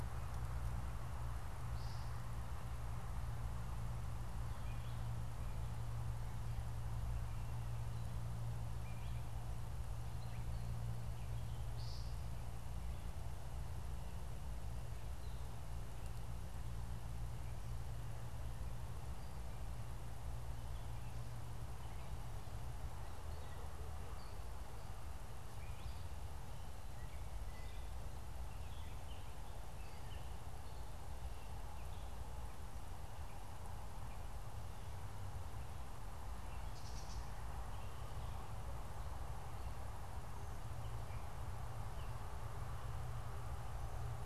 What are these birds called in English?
American Woodcock, Gray Catbird